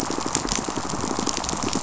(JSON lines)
{"label": "biophony, pulse", "recorder": "SoundTrap 500"}